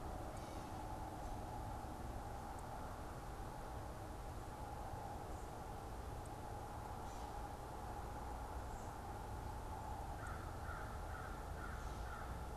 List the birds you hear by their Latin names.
Corvus brachyrhynchos